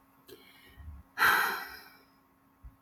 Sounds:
Sigh